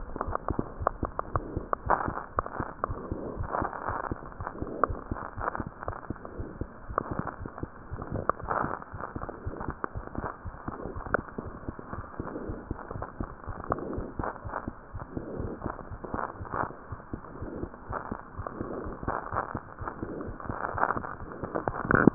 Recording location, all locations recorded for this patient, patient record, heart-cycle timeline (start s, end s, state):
aortic valve (AV)
aortic valve (AV)+pulmonary valve (PV)+tricuspid valve (TV)+mitral valve (MV)
#Age: Child
#Sex: Female
#Height: 99.0 cm
#Weight: 16.0 kg
#Pregnancy status: False
#Murmur: Absent
#Murmur locations: nan
#Most audible location: nan
#Systolic murmur timing: nan
#Systolic murmur shape: nan
#Systolic murmur grading: nan
#Systolic murmur pitch: nan
#Systolic murmur quality: nan
#Diastolic murmur timing: nan
#Diastolic murmur shape: nan
#Diastolic murmur grading: nan
#Diastolic murmur pitch: nan
#Diastolic murmur quality: nan
#Outcome: Abnormal
#Campaign: 2015 screening campaign
0.00	0.63	unannotated
0.63	0.78	diastole
0.78	0.90	S1
0.90	1.02	systole
1.02	1.12	S2
1.12	1.34	diastole
1.34	1.46	S1
1.46	1.56	systole
1.56	1.66	S2
1.66	1.86	diastole
1.86	1.98	S1
1.98	2.10	systole
2.10	2.16	S2
2.16	2.35	diastole
2.35	2.46	S1
2.46	2.56	systole
2.56	2.68	S2
2.68	2.88	diastole
2.88	3.00	S1
3.00	3.11	systole
3.11	3.24	S2
3.24	3.38	diastole
3.38	3.50	S1
3.50	3.62	systole
3.62	3.70	S2
3.70	3.88	diastole
3.88	3.98	S1
3.98	4.10	systole
4.10	4.18	S2
4.18	4.40	diastole
4.40	4.48	S1
4.48	4.60	systole
4.60	4.72	S2
4.72	4.84	diastole
4.84	5.00	S1
5.00	5.10	systole
5.10	5.18	S2
5.18	5.38	diastole
5.38	5.48	S1
5.48	5.60	systole
5.60	5.68	S2
5.68	5.88	diastole
5.88	5.96	S1
5.96	6.10	systole
6.10	6.16	S2
6.16	6.40	diastole
6.40	6.50	S1
6.50	6.59	systole
6.59	6.68	S2
6.68	6.89	diastole
6.89	7.00	S1
7.00	7.14	systole
7.14	7.24	S2
7.24	7.39	diastole
7.39	7.48	S1
7.48	7.56	diastole
7.56	7.62	systole
7.62	7.69	S2
7.69	7.92	diastole
7.92	22.14	unannotated